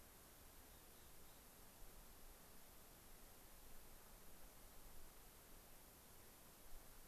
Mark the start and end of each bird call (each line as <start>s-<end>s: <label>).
0.5s-1.5s: Mountain Chickadee (Poecile gambeli)